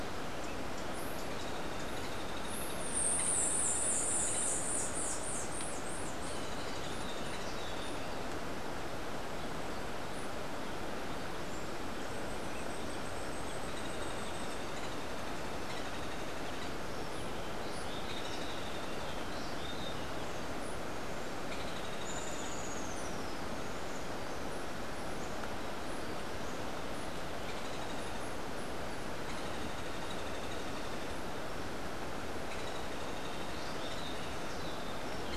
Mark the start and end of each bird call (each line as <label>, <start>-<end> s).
White-eared Ground-Sparrow (Melozone leucotis), 2.6-7.7 s
Rufous-breasted Wren (Pheugopedius rutilus), 17.6-20.1 s
Rufous-tailed Hummingbird (Amazilia tzacatl), 22.0-23.4 s